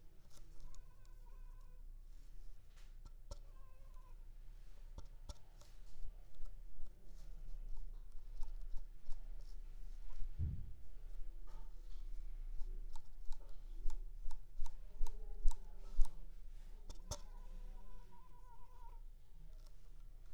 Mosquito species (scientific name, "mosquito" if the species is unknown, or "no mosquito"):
Culex pipiens complex